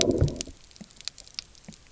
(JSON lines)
{"label": "biophony, low growl", "recorder": "SoundTrap 300"}